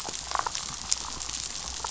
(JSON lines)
{"label": "biophony, damselfish", "recorder": "SoundTrap 500"}